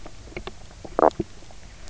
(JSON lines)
{"label": "biophony, knock croak", "recorder": "SoundTrap 300"}